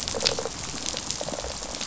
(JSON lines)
{"label": "biophony, rattle response", "recorder": "SoundTrap 500"}